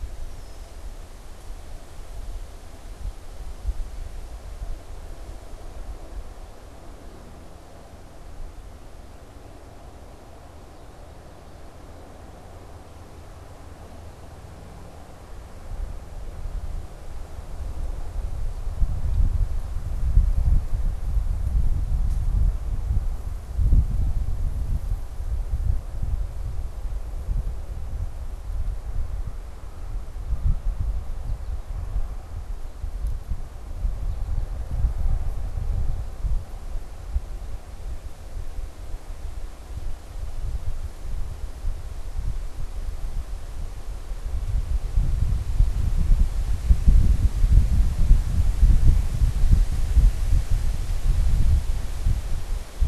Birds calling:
Red-winged Blackbird (Agelaius phoeniceus)
American Goldfinch (Spinus tristis)

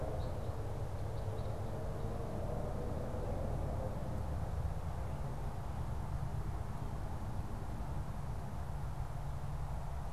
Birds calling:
Red Crossbill (Loxia curvirostra)

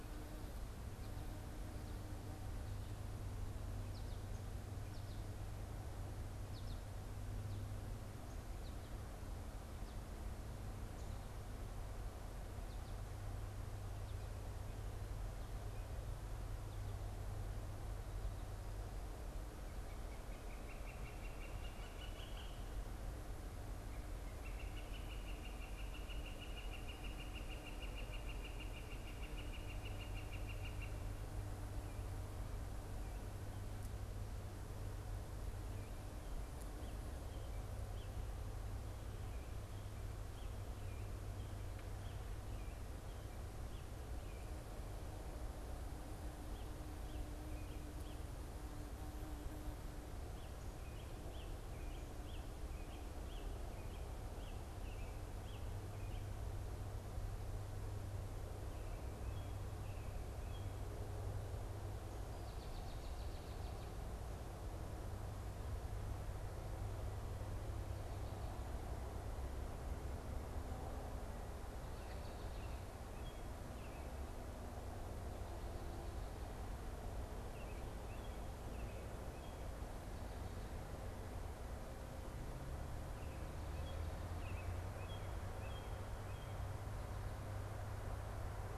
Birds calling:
unidentified bird
Northern Flicker (Colaptes auratus)
American Robin (Turdus migratorius)
American Goldfinch (Spinus tristis)

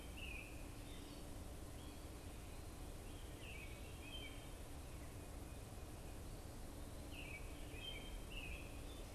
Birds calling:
Wood Thrush (Hylocichla mustelina)
American Robin (Turdus migratorius)

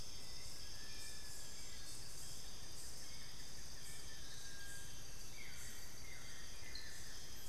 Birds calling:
Hauxwell's Thrush (Turdus hauxwelli)
Little Tinamou (Crypturellus soui)
Buff-throated Woodcreeper (Xiphorhynchus guttatus)

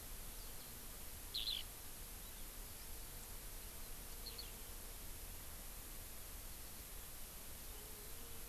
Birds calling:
Eurasian Skylark (Alauda arvensis)

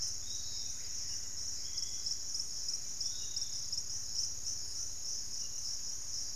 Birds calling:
Hauxwell's Thrush (Turdus hauxwelli)
Screaming Piha (Lipaugus vociferans)
unidentified bird
Piratic Flycatcher (Legatus leucophaius)

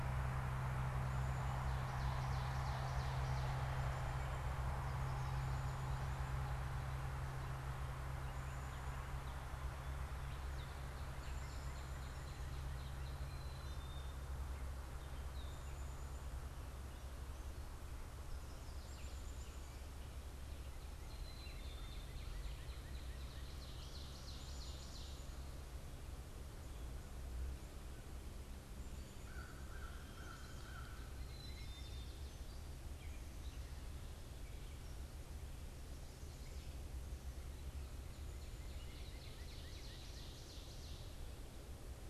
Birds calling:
American Crow (Corvus brachyrhynchos)
Black-capped Chickadee (Poecile atricapillus)
Ovenbird (Seiurus aurocapilla)
Northern Cardinal (Cardinalis cardinalis)

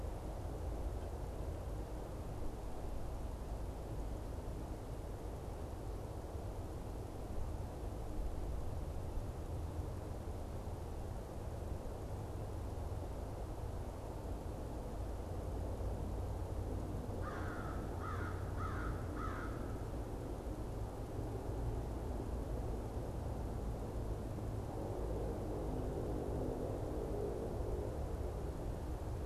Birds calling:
American Crow (Corvus brachyrhynchos)

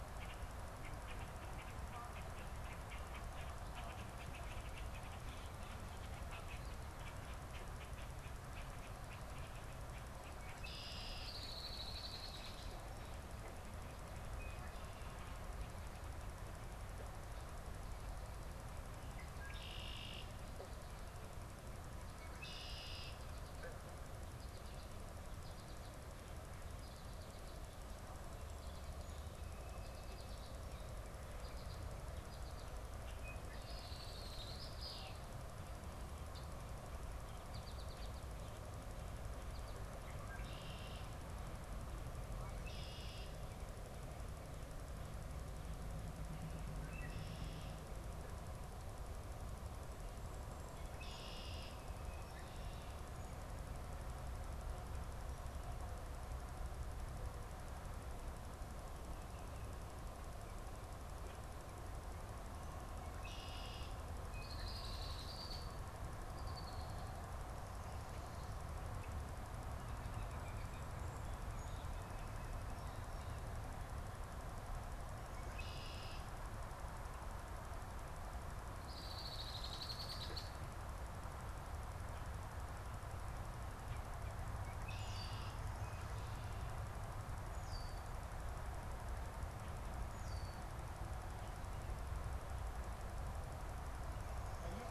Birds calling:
American Goldfinch (Spinus tristis)
Red-winged Blackbird (Agelaius phoeniceus)

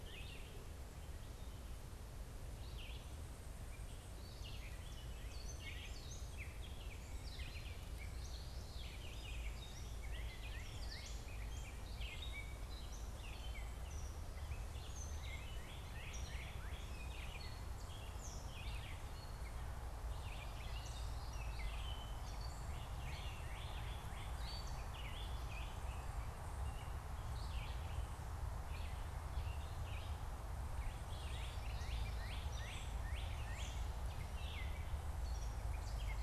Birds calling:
Gray Catbird (Dumetella carolinensis)
Northern Cardinal (Cardinalis cardinalis)
Red-eyed Vireo (Vireo olivaceus)

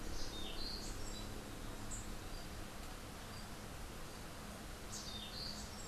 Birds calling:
Rufous-capped Warbler (Basileuterus rufifrons)
Orange-billed Nightingale-Thrush (Catharus aurantiirostris)

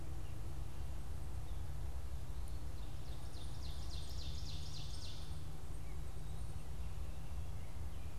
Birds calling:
Ovenbird (Seiurus aurocapilla)

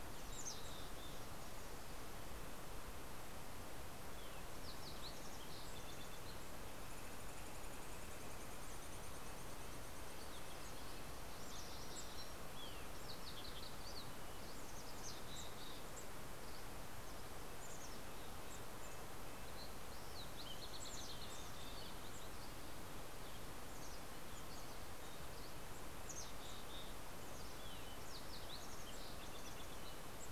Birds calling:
Fox Sparrow (Passerella iliaca)
Mountain Chickadee (Poecile gambeli)
Steller's Jay (Cyanocitta stelleri)
Red-breasted Nuthatch (Sitta canadensis)

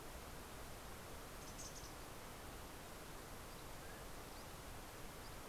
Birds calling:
Mountain Quail (Oreortyx pictus)
Mountain Chickadee (Poecile gambeli)

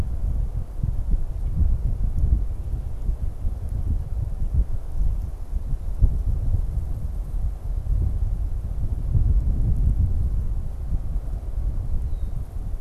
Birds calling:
Red-winged Blackbird (Agelaius phoeniceus)

